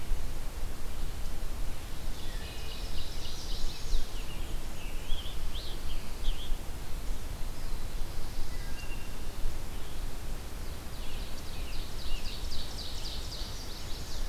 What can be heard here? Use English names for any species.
Ovenbird, Wood Thrush, Chestnut-sided Warbler, Scarlet Tanager, American Robin